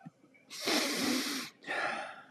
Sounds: Sniff